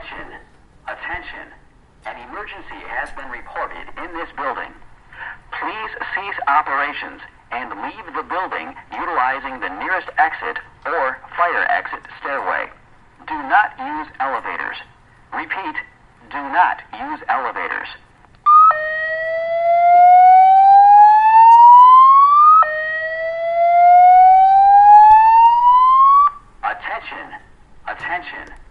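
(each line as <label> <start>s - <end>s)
A synthetic voice is speaking. 0.0s - 4.9s
A synthetic voice inhales. 5.1s - 5.4s
A synthetic voice is speaking. 5.5s - 18.0s
A loud, high-pitched fire alarm sounds. 18.4s - 26.4s
A person coughs quietly. 19.8s - 20.5s
A synthetic voice is speaking. 26.6s - 28.7s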